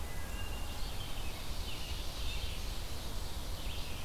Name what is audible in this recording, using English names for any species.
Wood Thrush, Ovenbird, Red-eyed Vireo